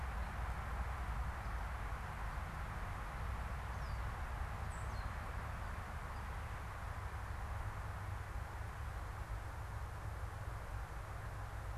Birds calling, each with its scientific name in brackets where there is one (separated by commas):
Gray Catbird (Dumetella carolinensis), unidentified bird